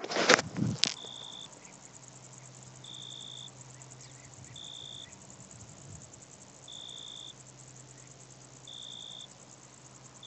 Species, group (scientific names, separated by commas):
Oecanthus pellucens, Orthoptera